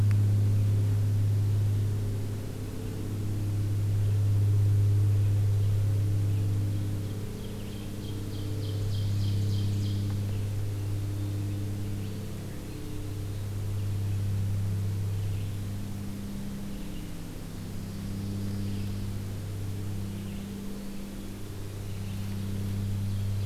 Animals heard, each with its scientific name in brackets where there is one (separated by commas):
Ovenbird (Seiurus aurocapilla), Eastern Wood-Pewee (Contopus virens)